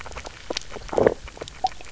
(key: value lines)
label: biophony, low growl
recorder: SoundTrap 300